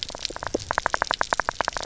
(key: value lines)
label: biophony, knock
recorder: SoundTrap 300